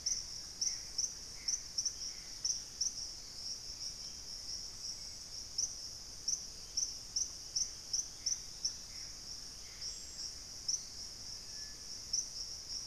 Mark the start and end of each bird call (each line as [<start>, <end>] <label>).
[0.00, 2.60] Gray Antbird (Cercomacra cinerascens)
[2.10, 3.20] Dusky-capped Greenlet (Pachysylvia hypoxantha)
[3.60, 5.60] Hauxwell's Thrush (Turdus hauxwelli)
[6.60, 9.20] Dusky-throated Antshrike (Thamnomanes ardesiacus)
[7.40, 10.40] Gray Antbird (Cercomacra cinerascens)
[9.20, 12.86] Dusky-capped Greenlet (Pachysylvia hypoxantha)